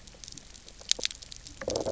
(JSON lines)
{"label": "biophony, low growl", "recorder": "SoundTrap 300"}